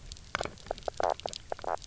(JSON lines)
{"label": "biophony, knock croak", "recorder": "SoundTrap 300"}